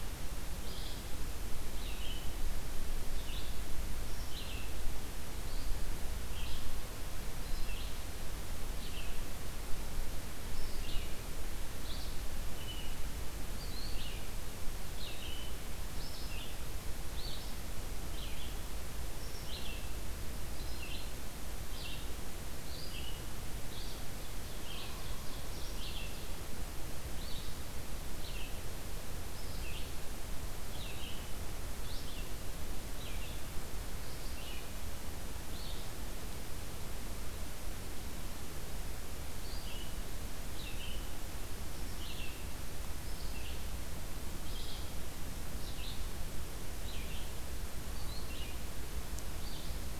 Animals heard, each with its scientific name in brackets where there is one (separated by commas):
Red-eyed Vireo (Vireo olivaceus), Ovenbird (Seiurus aurocapilla)